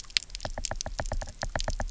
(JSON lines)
{"label": "biophony, knock", "recorder": "SoundTrap 300"}